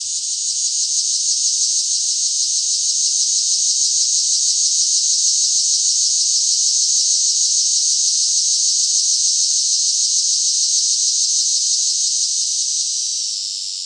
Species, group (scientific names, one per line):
Neotibicen tibicen
Cicadidae